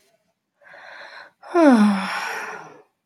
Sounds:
Sigh